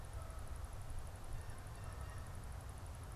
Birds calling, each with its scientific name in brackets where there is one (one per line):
Canada Goose (Branta canadensis)